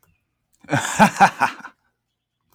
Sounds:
Laughter